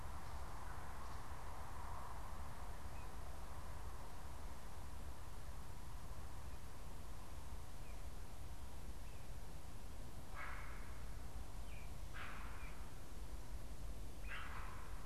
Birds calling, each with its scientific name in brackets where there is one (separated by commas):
Great Blue Heron (Ardea herodias)